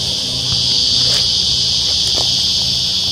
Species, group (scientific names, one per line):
Psaltoda plaga
Cicadidae